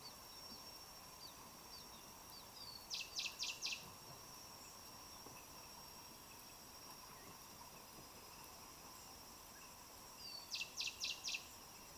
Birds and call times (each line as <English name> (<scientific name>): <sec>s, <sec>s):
Kikuyu White-eye (Zosterops kikuyuensis): 1.3s
Cinnamon Bracken-Warbler (Bradypterus cinnamomeus): 3.4s